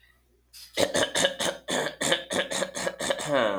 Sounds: Throat clearing